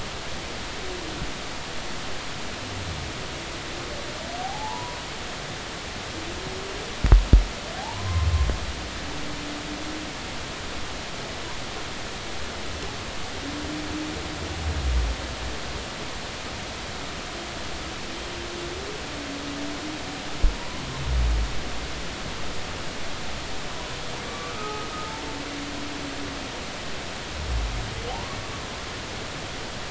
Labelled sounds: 4.4	5.0	humpback whale, 0.80 to 1.2 kHz
7.8	8.3	humpback whale, 0.80 to 1.1 kHz
24.2	24.9	humpback whale, 1.1 to 1.3 kHz
28.1	28.4	humpback whale, 0.80 to 1.2 kHz

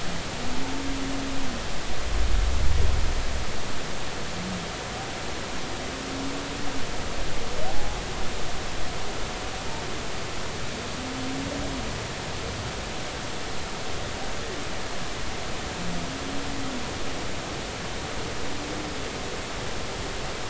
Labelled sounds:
7.7	8.0	humpback whale, 0.80 to 0.86 kHz

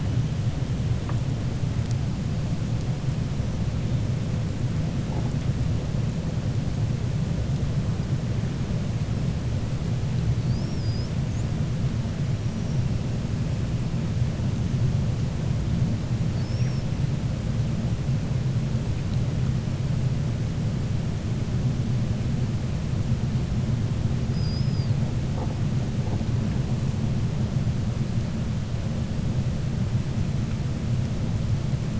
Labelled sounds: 12.4	12.8	killer whale, 5.4 to 5.9 kHz
24.2	25.0	killer whale, 4.3 to 5.3 kHz

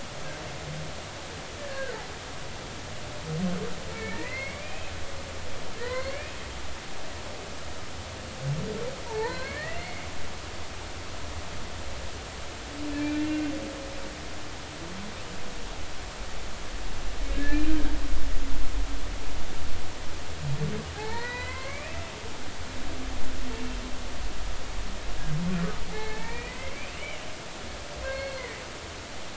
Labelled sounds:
1.6	2.0	humpback whale, 1.4 to 1.8 kHz
3.9	4.9	humpback whale, 1.7 to 2.6 kHz
5.8	6.4	humpback whale, 0.90 to 4.4 kHz
9.1	10.0	humpback whale, 0.83 to 4.2 kHz
13.1	13.4	humpback whale, 2.7 to 2.8 kHz
17.3	17.8	humpback whale, 1.6 to 2.5 kHz
20.9	22.0	humpback whale, 0.80 to 4.2 kHz
25.9	27.2	humpback whale, 0.80 to 3.1 kHz
28.0	28.6	humpback whale, 1.5 to 4.4 kHz

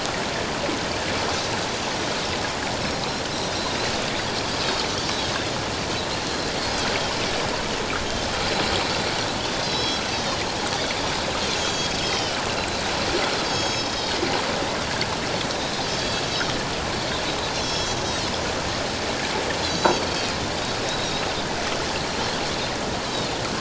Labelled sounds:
6.2	6.5	Pacific white-sided dolphin, 3.9 to 4.4 kHz
9.6	10.4	Pacific white-sided dolphin, 3.1 to 6.1 kHz
11.5	12.4	Pacific white-sided dolphin, 2.9 to 7.3 kHz
13.4	14.2	Pacific white-sided dolphin, 3.2 to 7.2 kHz
15.5	16.2	Pacific white-sided dolphin, 3.2 to 4.7 kHz
17.5	18.3	Pacific white-sided dolphin, 3.2 to 6.8 kHz
19.6	20.4	Pacific white-sided dolphin, 3.8 to 6.7 kHz
21.0	21.3	Pacific white-sided dolphin, 3.6 to 4.1 kHz

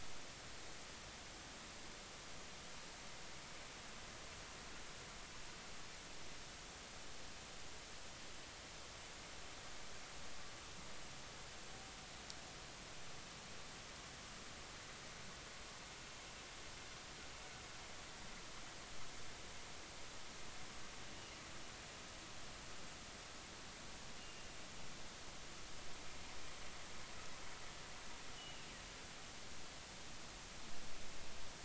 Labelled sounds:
28.4	28.7	humpback whale, 2.6 to 3.1 kHz

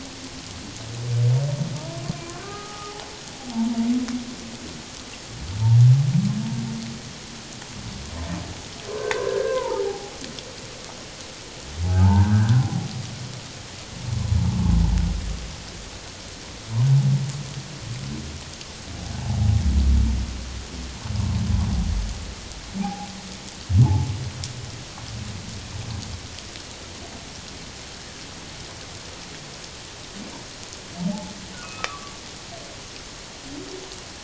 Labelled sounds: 2.2	2.9	humpback whale, 0.78 to 1.7 kHz
9.0	10.1	humpback whale, 0.78 to 1.7 kHz
11.8	12.9	humpback whale, 0.78 to 1.7 kHz
22.8	23.1	humpback whale, 0.78 to 0.91 kHz
23.8	24.1	humpback whale, 0.78 to 0.94 kHz
31.6	32.1	humpback whale, 0.97 to 1.3 kHz

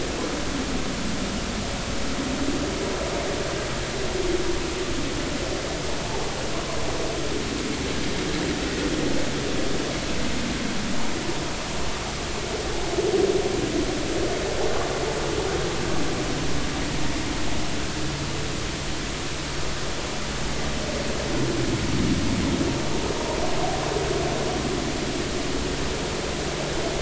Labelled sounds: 6.1	6.4	vessel noise, 0.80 to 0.93 kHz

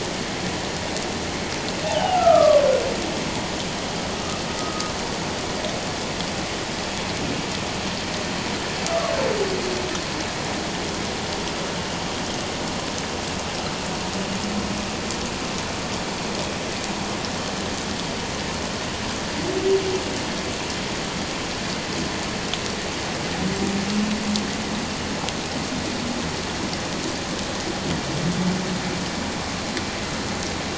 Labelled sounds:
1.8	2.6	humpback whale, 0.78 to 3.0 kHz
4.2	4.9	humpback whale, 1.2 to 1.3 kHz
8.9	9.1	humpback whale, 1.1 to 1.4 kHz

